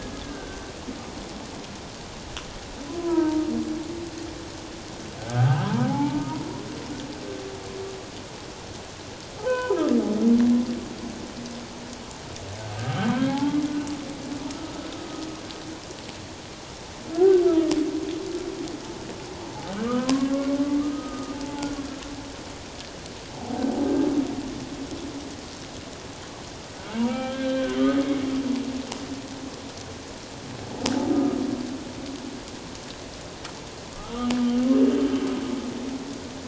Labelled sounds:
0.2	0.7	humpback whale, 1.4 to 1.6 kHz
3.0	3.4	humpback whale, 0.88 to 1.7 kHz
5.2	6.4	humpback whale, 0.78 to 1.7 kHz
9.4	10.0	humpback whale, 0.84 to 3.1 kHz
13.1	13.6	humpback whale, 0.78 to 1.7 kHz
14.5	14.9	humpback whale, 1.2 to 1.4 kHz
17.1	17.7	humpback whale, 1.2 to 1.6 kHz
19.8	20.5	humpback whale, 0.97 to 1.3 kHz
20.8	21.7	humpback whale, 0.81 to 1.3 kHz
26.9	28.1	humpback whale, 0.78 to 4.0 kHz
31.1	31.4	humpback whale, 1.2 to 1.4 kHz
33.9	34.2	humpback whale, 1.1 to 1.4 kHz

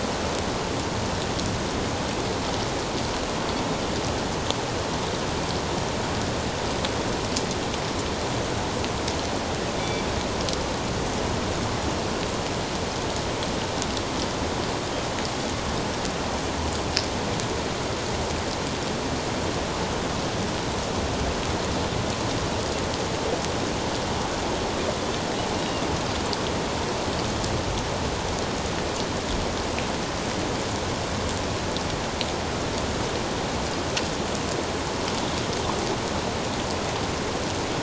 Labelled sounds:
9.8	10.0	Pacific white-sided dolphin, 2.2 to 2.4 kHz

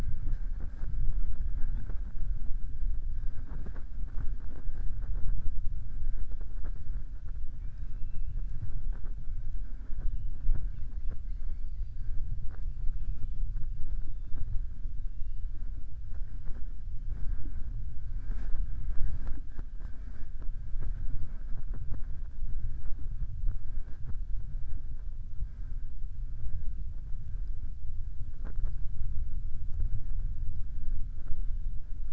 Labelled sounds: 12.8	13.4	killer whale, southern resident, 2.4 to 4.3 kHz

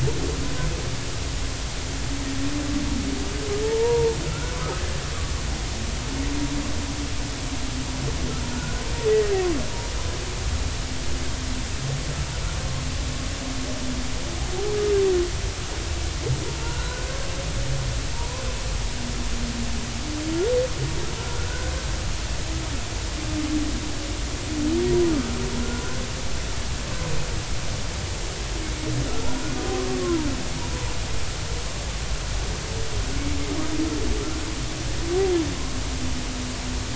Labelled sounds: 3.6	4.8	humpback whale, 0.83 to 1.5 kHz
9.1	9.3	humpback whale, 1.8 to 2.0 kHz
16.6	17.1	humpback whale, 1.3 to 4.1 kHz
18.1	18.4	humpback whale, 0.86 to 1.1 kHz
21.4	21.7	humpback whale, 1.4 to 1.6 kHz
30.0	30.3	humpback whale, 0.90 to 1.2 kHz

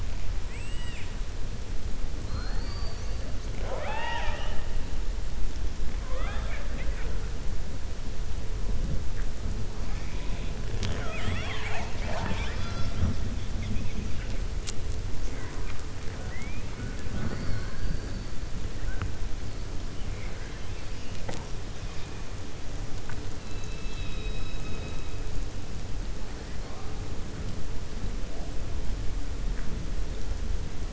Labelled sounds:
0.4	1.1	killer whale, 1.9 to 4.9 kHz
2.2	3.2	killer whale, 4.1 to 6.7 kHz
3.5	4.6	killer whale, 0.50 to 5.8 kHz
6.0	7.1	killer whale, 0.53 to 3.6 kHz
23.4	25.1	killer whale, 2.5 to 5.2 kHz

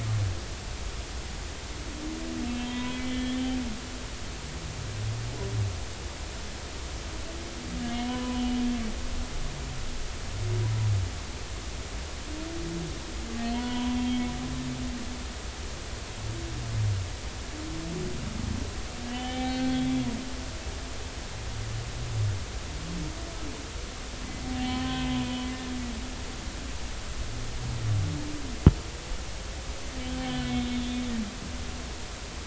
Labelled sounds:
2.5	3.4	humpback whale, 0.93 to 3.4 kHz
8.0	8.6	humpback whale, 0.96 to 3.1 kHz
13.5	14.0	humpback whale, 0.90 to 3.3 kHz
19.1	20.1	humpback whale, 0.80 to 3.5 kHz
24.4	25.5	humpback whale, 0.80 to 3.3 kHz
30.0	30.7	humpback whale, 2.9 to 3.5 kHz

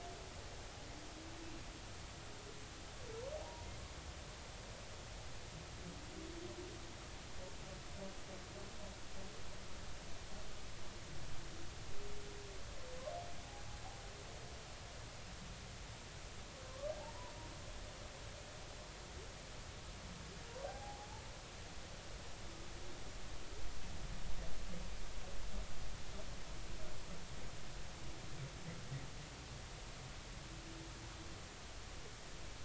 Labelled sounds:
3.4	3.7	humpback whale, 0.90 to 1.0 kHz
17.6	17.9	humpback whale, 0.99 to 1.2 kHz
21.6	22.1	humpback whale, 0.80 to 0.90 kHz

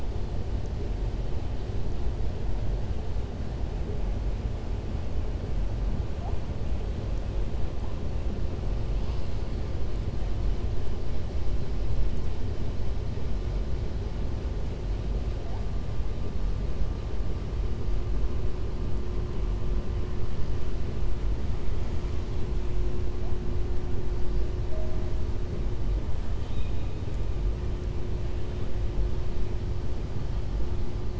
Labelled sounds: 26.3	26.9	killer whale, southern resident, 2.4 to 4.0 kHz

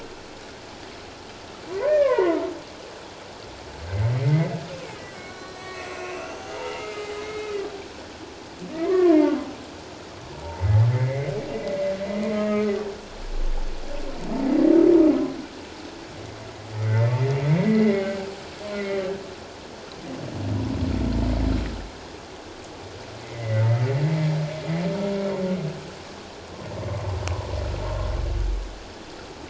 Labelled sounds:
1.9	2.4	humpback whale, 0.88 to 2.5 kHz
4.2	4.6	humpback whale, 1.9 to 2.2 kHz
5.2	7.5	humpback whale, 0.88 to 4.2 kHz
8.7	9.2	humpback whale, 0.88 to 2.2 kHz
10.4	11.3	humpback whale, 0.78 to 2.2 kHz
12.3	12.7	humpback whale, 1.2 to 2.2 kHz
16.8	19.1	humpback whale, 1.5 to 2.3 kHz
23.2	23.6	humpback whale, 1.9 to 2.2 kHz

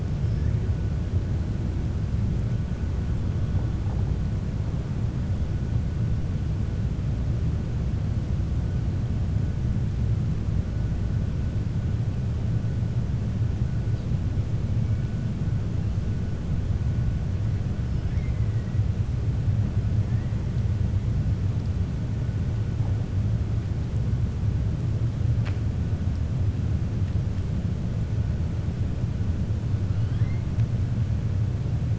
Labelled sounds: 29.9	30.4	killer whale, 1.0 to 4.2 kHz

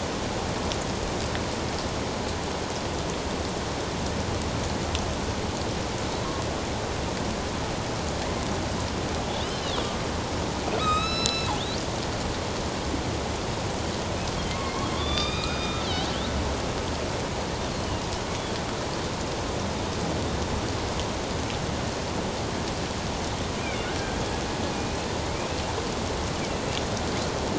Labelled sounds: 9.2	9.9	killer whale, northern resident, A clan, AB subclan, 3.1 to 4.2 kHz
10.8	11.5	killer whale, northern resident, A clan, AB subclan, 1.2 to 7.8 kHz
14.6	15.8	killer whale, northern resident, A clan, AB subclan, 1.1 to 5.0 kHz
25.2	25.5	killer whale, northern resident, A clan, AB subclan, 1.9 to 2.5 kHz

